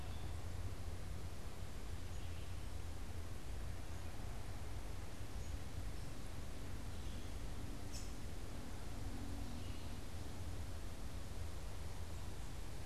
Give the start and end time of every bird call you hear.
[0.00, 10.35] Red-eyed Vireo (Vireo olivaceus)
[7.75, 8.35] American Robin (Turdus migratorius)

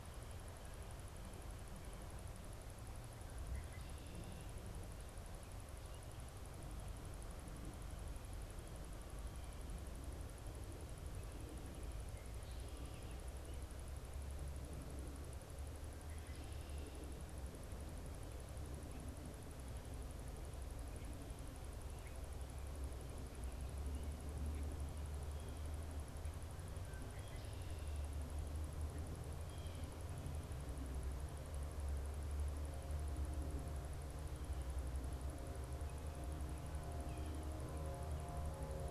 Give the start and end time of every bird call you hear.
[3.33, 4.53] Red-winged Blackbird (Agelaius phoeniceus)
[26.63, 28.03] Red-winged Blackbird (Agelaius phoeniceus)
[29.33, 30.03] Blue Jay (Cyanocitta cristata)

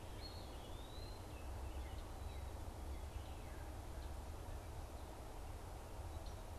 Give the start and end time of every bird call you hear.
[0.13, 1.33] Eastern Wood-Pewee (Contopus virens)

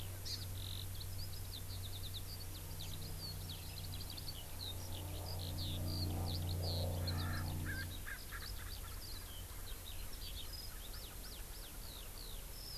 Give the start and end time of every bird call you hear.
[0.00, 12.77] Eurasian Skylark (Alauda arvensis)
[0.29, 0.39] Hawaii Amakihi (Chlorodrepanis virens)
[6.99, 8.89] Erckel's Francolin (Pternistis erckelii)

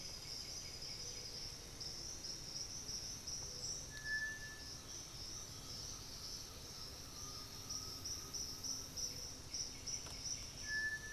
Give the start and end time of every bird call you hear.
[0.00, 1.45] White-winged Becard (Pachyramphus polychopterus)
[0.00, 3.75] Black-billed Thrush (Turdus ignobilis)
[4.54, 7.75] unidentified bird
[4.75, 8.85] Great Antshrike (Taraba major)
[6.75, 9.04] Undulated Tinamou (Crypturellus undulatus)
[8.95, 11.04] White-winged Becard (Pachyramphus polychopterus)

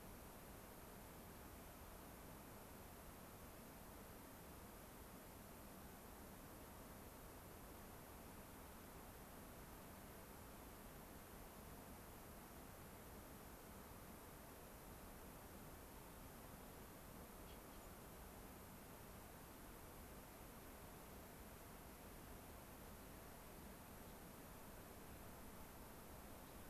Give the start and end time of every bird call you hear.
[17.78, 17.88] unidentified bird

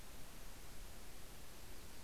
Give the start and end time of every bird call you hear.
[1.20, 2.04] Yellow-rumped Warbler (Setophaga coronata)

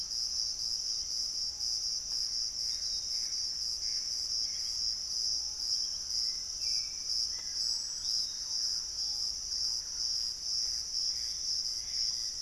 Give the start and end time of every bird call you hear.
[0.00, 7.78] Hauxwell's Thrush (Turdus hauxwelli)
[0.00, 12.42] Gray Antbird (Cercomacra cinerascens)
[0.00, 12.42] Piratic Flycatcher (Legatus leucophaius)
[5.08, 11.98] Thrush-like Wren (Campylorhynchus turdinus)
[10.98, 12.42] Black-faced Antthrush (Formicarius analis)
[10.98, 12.42] unidentified bird

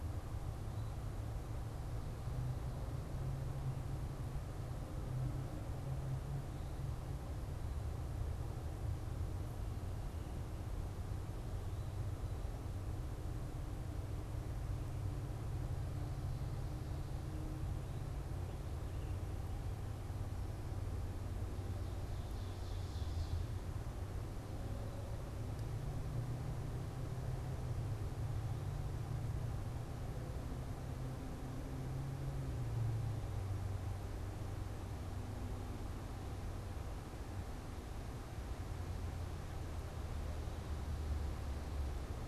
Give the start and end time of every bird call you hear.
[21.98, 23.58] Ovenbird (Seiurus aurocapilla)

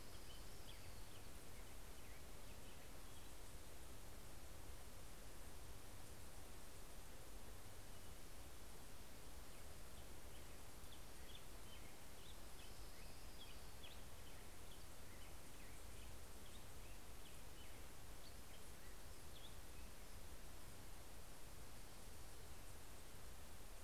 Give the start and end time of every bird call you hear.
[0.00, 2.26] Orange-crowned Warbler (Leiothlypis celata)
[0.00, 4.76] Black-headed Grosbeak (Pheucticus melanocephalus)
[10.16, 20.56] Black-headed Grosbeak (Pheucticus melanocephalus)
[12.06, 14.66] Orange-crowned Warbler (Leiothlypis celata)

